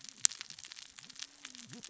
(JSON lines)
{"label": "biophony, cascading saw", "recorder": "SoundTrap 600 or HydroMoth"}